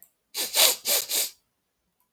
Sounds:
Sniff